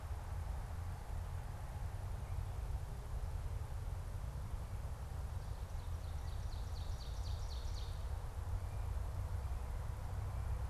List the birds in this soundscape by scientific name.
Seiurus aurocapilla